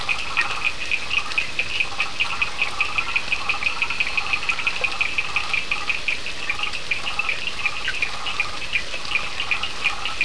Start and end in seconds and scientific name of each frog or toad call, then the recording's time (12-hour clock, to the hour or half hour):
0.0	10.2	Boana prasina
0.0	10.2	Sphaenorhynchus surdus
3.5	4.5	Elachistocleis bicolor
2am